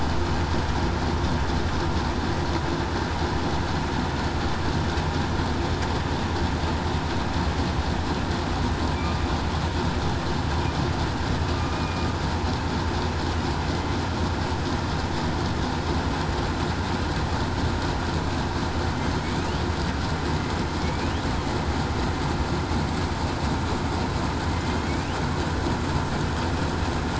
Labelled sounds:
11.7	12.0	killer whale, southern resident, 2.4 to 2.5 kHz
20.7	21.1	killer whale, southern resident, 2.1 to 2.5 kHz

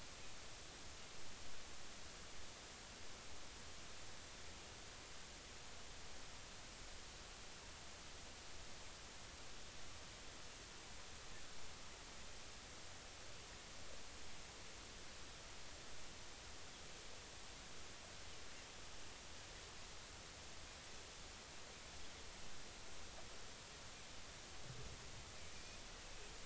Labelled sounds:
25.5	25.8	Pacific white-sided dolphin, 2.3 to 2.6 kHz

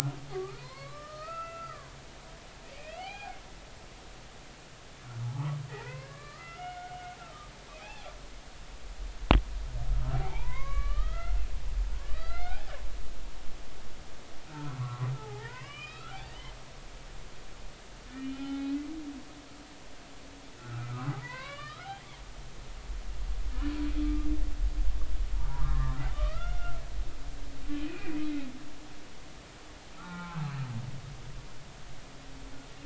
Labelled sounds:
0.3	1.9	humpback whale, 0.90 to 4.7 kHz
2.7	3.4	humpback whale, 0.80 to 3.3 kHz
5.7	8.1	humpback whale, 0.80 to 2.8 kHz
10.1	11.4	humpback whale, 0.80 to 3.3 kHz
12.1	16.5	humpback whale, 0.80 to 4.4 kHz
18.1	18.9	humpback whale, 0.80 to 3.1 kHz
20.6	22.0	humpback whale, 0.93 to 4.3 kHz
24.0	24.3	humpback whale, 1.2 to 1.3 kHz
25.5	26.8	humpback whale, 0.90 to 3.6 kHz
27.8	28.3	humpback whale, 2.2 to 2.6 kHz
30.0	30.5	humpback whale, 0.80 to 1.5 kHz

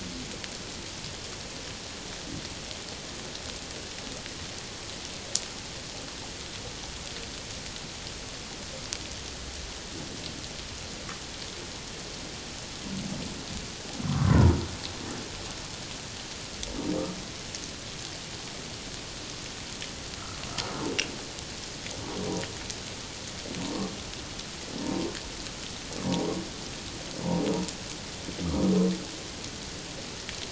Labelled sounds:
14.0	14.6	humpback whale, 0.88 to 1.3 kHz
24.8	25.1	humpback whale, 0.88 to 1.1 kHz
26.0	26.3	humpback whale, 0.91 to 1.0 kHz

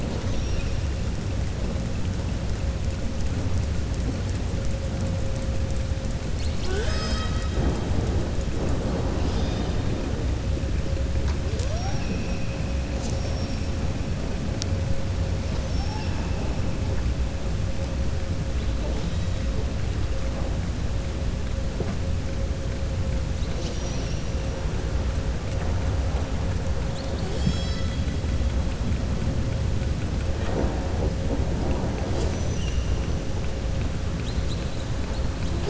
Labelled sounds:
0.0	0.8	killer whale, southern resident, 2.5 to 6.3 kHz
9.2	9.8	killer whale, southern resident, 2.5 to 6.2 kHz
15.5	16.1	killer whale, southern resident, 4.3 to 6.2 kHz

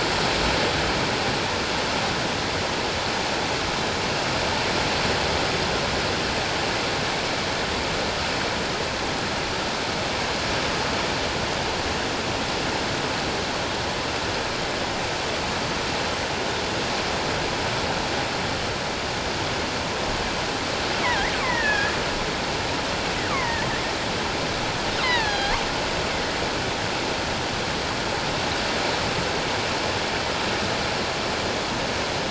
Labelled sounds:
21.0	22.0	killer whale, offshore, 0.88 to 2.8 kHz
23.3	23.6	killer whale, offshore, 0.88 to 2.3 kHz
25.0	25.6	killer whale, offshore, 0.78 to 5.1 kHz

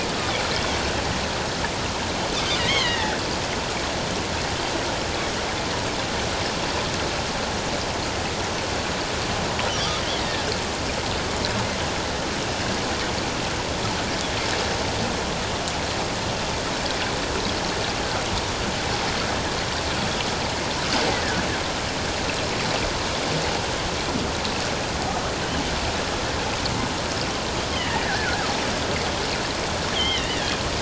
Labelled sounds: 2.6	3.2	killer whale, offshore, 1.4 to 4.6 kHz
9.7	10.5	killer whale, offshore, 1.1 to 2.2 kHz
27.7	28.5	killer whale, offshore, 1.3 to 2.2 kHz
29.9	30.5	killer whale, offshore, 1.6 to 3.5 kHz

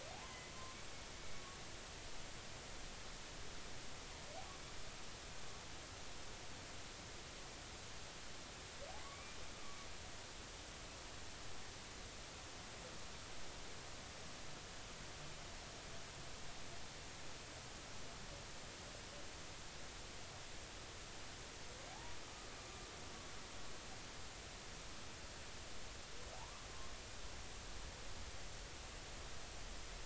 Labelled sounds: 0.3	0.5	humpback whale, 2.0 to 2.1 kHz
9.1	9.4	humpback whale, 2.1 to 2.4 kHz
21.9	22.2	humpback whale, 0.80 to 0.99 kHz
26.3	26.6	humpback whale, 0.80 to 1.3 kHz

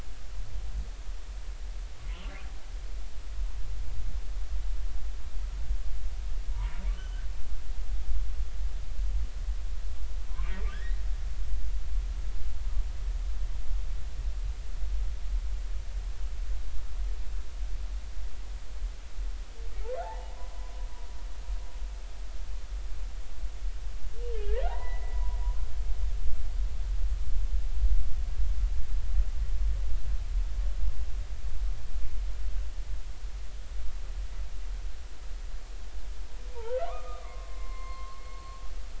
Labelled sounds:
6.5	7.3	humpback whale, 0.90 to 3.1 kHz
10.7	11.0	humpback whale, 1.5 to 2.1 kHz
20.0	20.7	humpback whale, 0.80 to 1.1 kHz
24.3	25.2	humpback whale, 0.80 to 2.1 kHz
36.5	38.6	humpback whale, 0.83 to 4.5 kHz

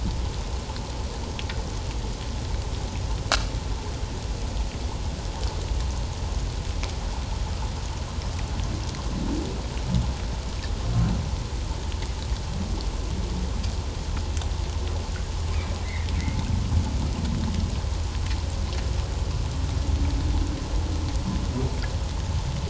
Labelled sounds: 15.8	16.1	humpback whale, 1.7 to 2.2 kHz

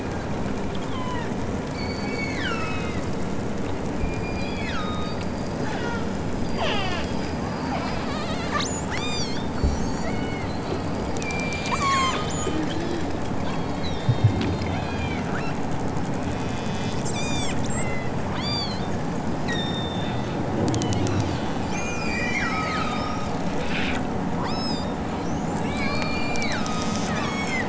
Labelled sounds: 0.0	0.4	killer whale, southern Alaska resident, 2.9 to 5.1 kHz
0.9	3.1	killer whale, southern Alaska resident, 0.64 to 7.3 kHz
3.9	7.2	killer whale, southern Alaska resident, 0.37 to 7.8 kHz
7.5	9.5	killer whale, southern Alaska resident, 1.2 to 8.0 kHz
10.0	10.5	killer whale, southern Alaska resident, 1.1 to 5.5 kHz
11.2	12.6	killer whale, southern Alaska resident, 0.78 to 8.0 kHz
13.4	15.6	killer whale, southern Alaska resident, 1.1 to 5.9 kHz
16.1	18.8	killer whale, southern Alaska resident, 1.4 to 8.0 kHz
19.4	20.3	killer whale, southern Alaska resident, 1.5 to 8.0 kHz
20.7	23.5	killer whale, southern Alaska resident, 0.92 to 8.0 kHz
24.4	24.9	killer whale, southern Alaska resident, 1.7 to 8.0 kHz
25.7	27.6	killer whale, southern Alaska resident, 0.87 to 8.0 kHz

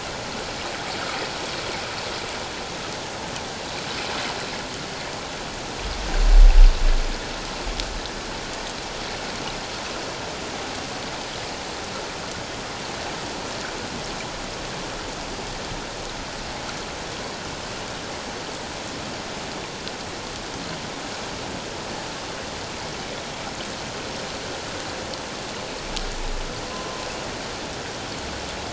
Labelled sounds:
26.7	27.1	humpback whale, 0.97 to 1.1 kHz

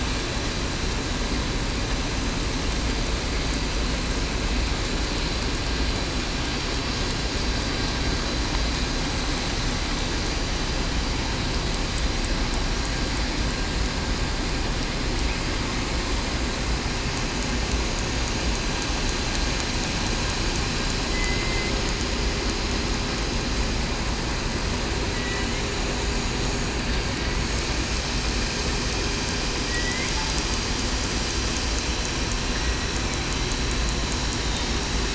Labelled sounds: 21.3	21.7	killer whale, southern resident, 2.0 to 2.2 kHz
25.1	25.5	killer whale, southern resident, 1.9 to 2.0 kHz
29.6	30.1	killer whale, southern resident, 1.9 to 2.2 kHz

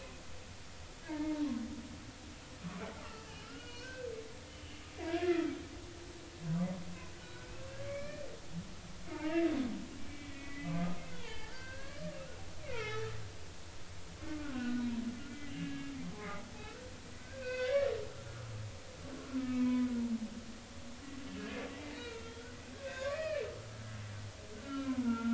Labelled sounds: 1.1	1.5	humpback whale, 0.86 to 2.3 kHz
3.0	4.1	humpback whale, 1.2 to 2.9 kHz
4.5	5.5	humpback whale, 1.2 to 3.1 kHz
7.1	8.3	humpback whale, 1.1 to 2.5 kHz
9.1	12.0	humpback whale, 0.83 to 4.7 kHz
12.6	13.1	humpback whale, 1.2 to 3.6 kHz
14.3	15.9	humpback whale, 0.99 to 2.9 kHz
17.2	17.9	humpback whale, 1.4 to 4.7 kHz
19.4	19.9	humpback whale, 0.96 to 2.3 kHz
21.4	22.5	humpback whale, 1.3 to 3.3 kHz
22.7	23.5	humpback whale, 0.99 to 4.4 kHz
24.6	25.3	humpback whale, 1.2 to 1.5 kHz

